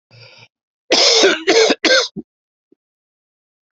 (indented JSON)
{
  "expert_labels": [
    {
      "quality": "ok",
      "cough_type": "dry",
      "dyspnea": false,
      "wheezing": false,
      "stridor": false,
      "choking": false,
      "congestion": false,
      "nothing": true,
      "diagnosis": "lower respiratory tract infection",
      "severity": "mild"
    }
  ],
  "age": 44,
  "gender": "male",
  "respiratory_condition": false,
  "fever_muscle_pain": false,
  "status": "symptomatic"
}